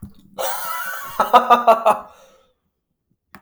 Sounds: Laughter